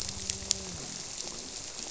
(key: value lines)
label: biophony, grouper
recorder: SoundTrap 300